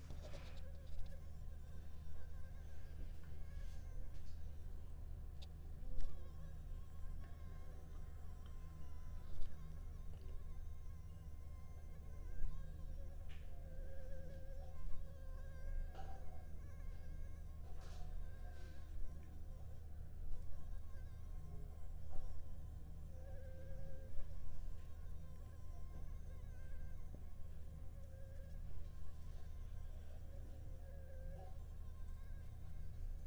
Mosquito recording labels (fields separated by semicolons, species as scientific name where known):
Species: Anopheles arabiensis; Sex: female; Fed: unfed; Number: one; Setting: cup